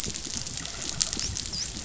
{"label": "biophony, dolphin", "recorder": "SoundTrap 500"}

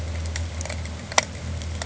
{"label": "anthrophony, boat engine", "recorder": "HydroMoth"}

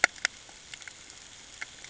{"label": "ambient", "recorder": "HydroMoth"}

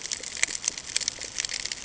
{"label": "ambient", "recorder": "HydroMoth"}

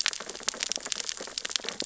{"label": "biophony, sea urchins (Echinidae)", "recorder": "SoundTrap 600 or HydroMoth"}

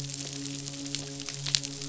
{"label": "biophony, midshipman", "recorder": "SoundTrap 500"}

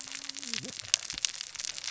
{"label": "biophony, cascading saw", "recorder": "SoundTrap 600 or HydroMoth"}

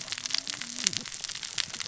{"label": "biophony, cascading saw", "recorder": "SoundTrap 600 or HydroMoth"}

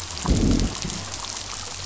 {"label": "biophony, growl", "recorder": "SoundTrap 500"}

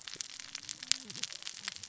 {"label": "biophony, cascading saw", "recorder": "SoundTrap 600 or HydroMoth"}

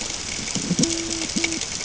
{"label": "ambient", "recorder": "HydroMoth"}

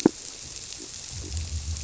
{"label": "biophony", "recorder": "SoundTrap 300"}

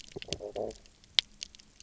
{"label": "biophony, stridulation", "recorder": "SoundTrap 300"}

